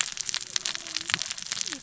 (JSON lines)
{"label": "biophony, cascading saw", "recorder": "SoundTrap 600 or HydroMoth"}